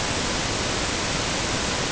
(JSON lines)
{"label": "ambient", "recorder": "HydroMoth"}